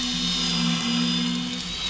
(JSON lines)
{"label": "anthrophony, boat engine", "recorder": "SoundTrap 500"}